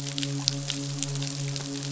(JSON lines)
{"label": "biophony, midshipman", "recorder": "SoundTrap 500"}